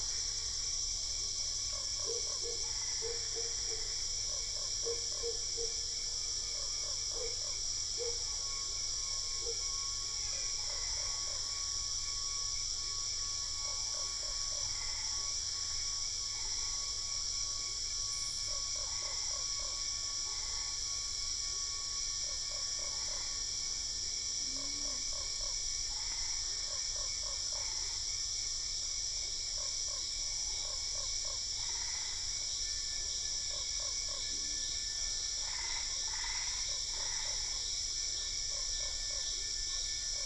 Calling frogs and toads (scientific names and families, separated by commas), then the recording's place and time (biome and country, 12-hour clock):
Boana albopunctata (Hylidae), Boana lundii (Hylidae), Physalaemus marmoratus (Leptodactylidae), Dendropsophus cruzi (Hylidae)
Cerrado, Brazil, 7:45pm